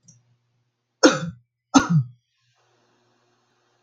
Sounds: Cough